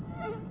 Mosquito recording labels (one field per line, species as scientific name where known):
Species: Aedes albopictus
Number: several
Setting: insect culture